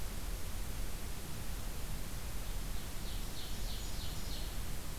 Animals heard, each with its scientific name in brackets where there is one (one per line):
Ovenbird (Seiurus aurocapilla)
Golden-crowned Kinglet (Regulus satrapa)